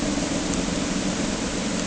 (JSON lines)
{"label": "anthrophony, boat engine", "recorder": "HydroMoth"}